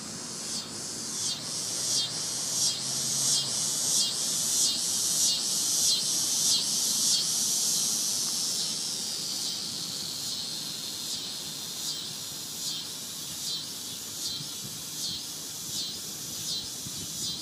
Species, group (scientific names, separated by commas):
Neotibicen winnemanna, Cicadidae